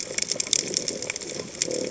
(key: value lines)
label: biophony
recorder: HydroMoth